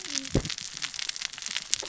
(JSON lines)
{"label": "biophony, cascading saw", "recorder": "SoundTrap 600 or HydroMoth"}